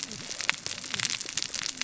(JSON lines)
{"label": "biophony, cascading saw", "recorder": "SoundTrap 600 or HydroMoth"}